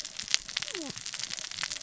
{"label": "biophony, cascading saw", "recorder": "SoundTrap 600 or HydroMoth"}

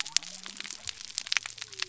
{"label": "biophony", "recorder": "SoundTrap 300"}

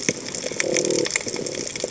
{"label": "biophony", "recorder": "HydroMoth"}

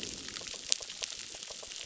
{"label": "biophony, crackle", "recorder": "SoundTrap 600"}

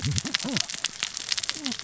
{"label": "biophony, cascading saw", "recorder": "SoundTrap 600 or HydroMoth"}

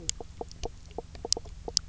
{"label": "biophony, knock croak", "recorder": "SoundTrap 300"}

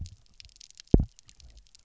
{"label": "biophony, double pulse", "recorder": "SoundTrap 300"}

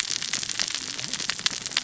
{"label": "biophony, cascading saw", "recorder": "SoundTrap 600 or HydroMoth"}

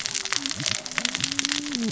{"label": "biophony, cascading saw", "recorder": "SoundTrap 600 or HydroMoth"}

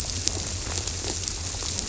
{"label": "biophony", "recorder": "SoundTrap 300"}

